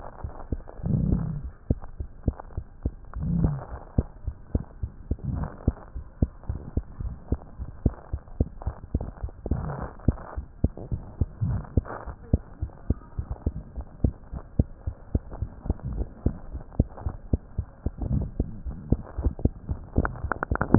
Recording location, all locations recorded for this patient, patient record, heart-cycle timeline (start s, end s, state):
mitral valve (MV)
aortic valve (AV)+pulmonary valve (PV)+tricuspid valve (TV)+mitral valve (MV)
#Age: Child
#Sex: Female
#Height: 99.0 cm
#Weight: 12.7 kg
#Pregnancy status: False
#Murmur: Absent
#Murmur locations: nan
#Most audible location: nan
#Systolic murmur timing: nan
#Systolic murmur shape: nan
#Systolic murmur grading: nan
#Systolic murmur pitch: nan
#Systolic murmur quality: nan
#Diastolic murmur timing: nan
#Diastolic murmur shape: nan
#Diastolic murmur grading: nan
#Diastolic murmur pitch: nan
#Diastolic murmur quality: nan
#Outcome: Normal
#Campaign: 2015 screening campaign
0.00	4.06	unannotated
4.06	4.25	diastole
4.25	4.33	S1
4.33	4.53	systole
4.53	4.62	S2
4.62	4.81	diastole
4.81	4.88	S1
4.88	5.09	systole
5.09	5.16	S2
5.16	5.35	diastole
5.35	5.45	S1
5.45	5.65	systole
5.65	5.74	S2
5.74	5.94	diastole
5.94	6.01	S1
6.01	6.20	systole
6.20	6.28	S2
6.28	6.48	diastole
6.48	6.56	S1
6.56	6.74	systole
6.74	6.81	S2
6.81	7.01	diastole
7.01	7.12	S1
7.12	7.29	systole
7.29	7.40	S2
7.40	7.58	diastole
7.58	7.68	S1
7.68	7.83	systole
7.83	7.92	S2
7.92	8.10	diastole
8.10	8.18	S1
8.18	8.36	S2
8.36	8.45	S2
8.45	8.65	diastole
8.65	8.72	S1
8.72	8.93	systole
8.93	9.00	S2
9.00	9.20	diastole
9.20	9.28	S1
9.28	9.49	systole
9.49	9.58	S2
9.58	9.82	diastole
9.82	9.88	S1
9.88	10.06	systole
10.06	10.16	S2
10.16	10.36	diastole
10.36	10.44	S1
10.44	10.62	systole
10.62	10.69	S2
10.69	10.89	diastole
10.89	10.99	S1
10.99	11.18	systole
11.18	11.29	S2
11.29	20.78	unannotated